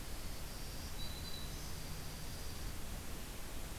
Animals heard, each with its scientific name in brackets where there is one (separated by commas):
Dark-eyed Junco (Junco hyemalis), Black-throated Green Warbler (Setophaga virens)